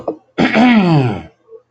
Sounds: Throat clearing